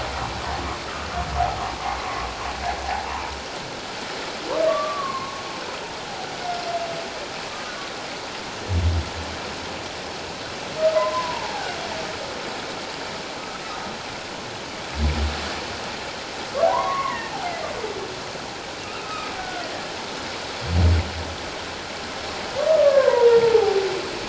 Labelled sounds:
2.9	3.2	humpback whale, 0.78 to 1.1 kHz
4.7	5.3	humpback whale, 1.0 to 1.2 kHz
7.5	7.7	humpback whale, 1.2 to 1.3 kHz
10.9	11.8	humpback whale, 0.78 to 1.7 kHz
16.7	17.3	humpback whale, 0.91 to 2.2 kHz
19.0	19.7	humpback whale, 1.2 to 1.6 kHz
22.7	23.8	humpback whale, 0.78 to 1.8 kHz

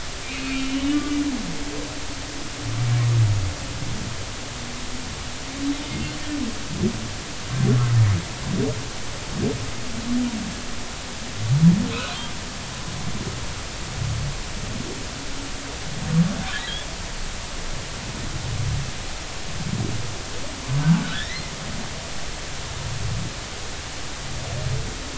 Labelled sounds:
0.2	0.6	humpback whale, 2.2 to 2.6 kHz
0.9	1.2	humpback whale, 1.1 to 1.2 kHz
5.7	6.0	humpback whale, 3.6 to 3.7 kHz
11.9	12.2	humpback whale, 2.4 to 2.7 kHz
21.0	21.5	humpback whale, 1.3 to 2.1 kHz

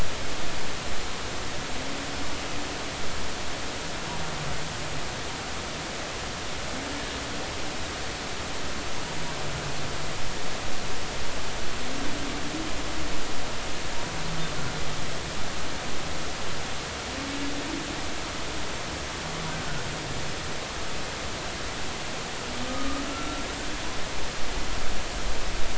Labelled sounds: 19.5	19.8	humpback whale, 1.4 to 1.6 kHz
22.7	23.4	humpback whale, 1.1 to 1.4 kHz

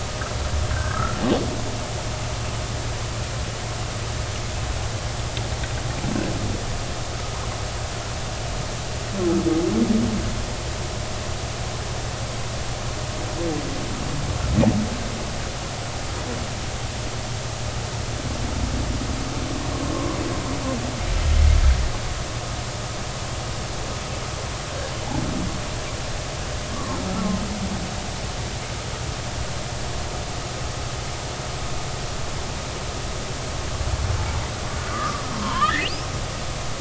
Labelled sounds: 0.7	1.2	humpback whale, 1.2 to 1.7 kHz
26.7	27.0	humpback whale, 0.83 to 1.2 kHz
34.9	36.1	humpback whale, 0.90 to 5.7 kHz

